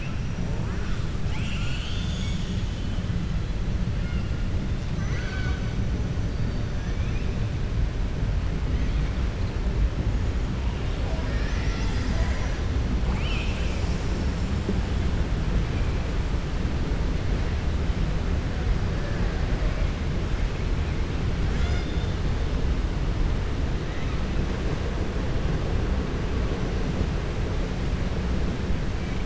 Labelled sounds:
4.9	5.6	killer whale, southern resident, 0.75 to 6.2 kHz

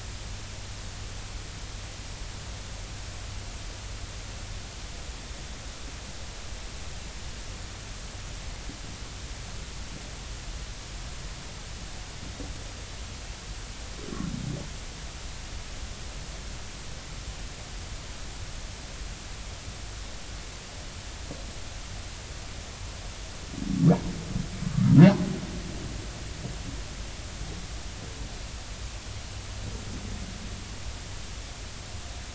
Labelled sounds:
24.7	24.9	humpback whale, 1.1 to 1.4 kHz

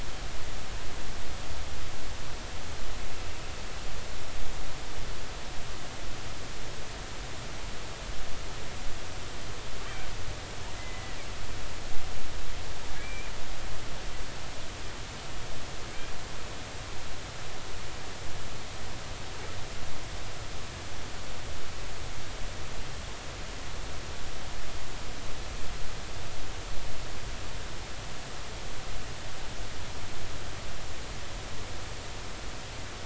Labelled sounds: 10.8	11.2	killer whale, Bigg's (transient), call T02, 1.9 to 2.1 kHz
13.0	13.3	killer whale, Bigg's (transient), 2.2 to 2.5 kHz

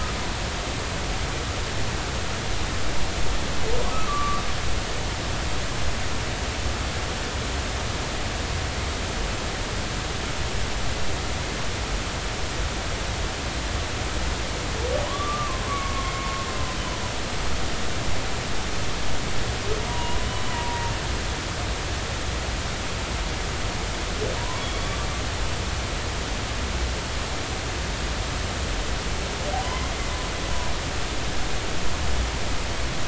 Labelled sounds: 3.9	4.4	humpback whale, 1.1 to 1.3 kHz
15.1	16.3	humpback whale, 0.93 to 2.2 kHz
19.9	20.2	humpback whale, 0.90 to 1.0 kHz
20.5	20.9	humpback whale, 0.90 to 0.99 kHz
24.4	24.6	humpback whale, 0.90 to 1.2 kHz

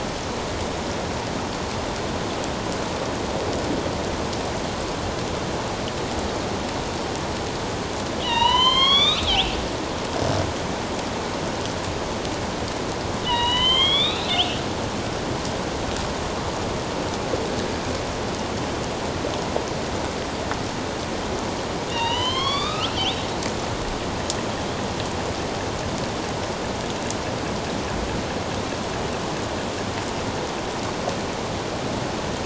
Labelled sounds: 8.2	9.6	killer whale, northern resident, A clan, AB subclan, 0.88 to 6.4 kHz
13.2	14.6	killer whale, northern resident, A clan, AB subclan, 0.88 to 4.2 kHz
21.9	23.2	killer whale, northern resident, A clan, AB subclan, 0.84 to 6.6 kHz

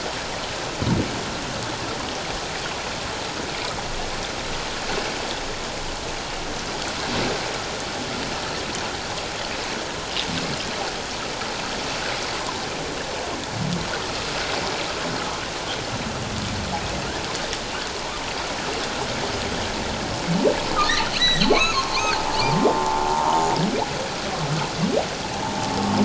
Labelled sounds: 20.8	22.3	humpback whale, 0.78 to 4.6 kHz

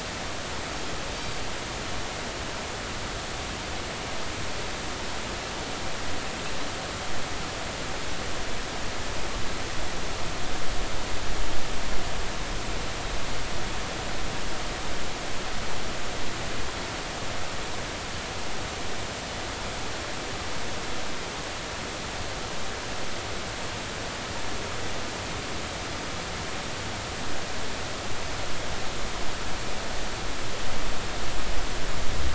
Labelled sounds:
1.1	1.4	Pacific white-sided dolphin, 4.6 to 4.7 kHz

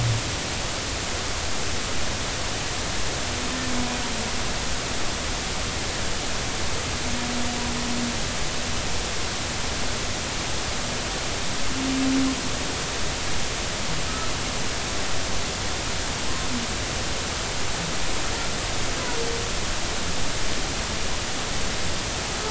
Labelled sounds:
14.1	14.3	humpback whale, 1.2 to 1.4 kHz

